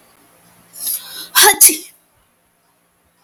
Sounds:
Sneeze